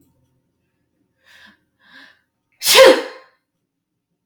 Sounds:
Sneeze